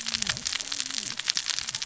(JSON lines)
{"label": "biophony, cascading saw", "recorder": "SoundTrap 600 or HydroMoth"}